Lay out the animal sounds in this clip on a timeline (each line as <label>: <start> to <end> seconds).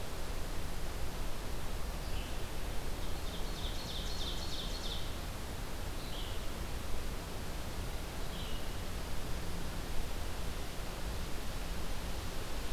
Red-eyed Vireo (Vireo olivaceus): 1.9 to 2.5 seconds
Ovenbird (Seiurus aurocapilla): 2.9 to 5.2 seconds
Red-eyed Vireo (Vireo olivaceus): 5.8 to 8.7 seconds